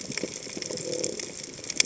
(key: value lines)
label: biophony
recorder: HydroMoth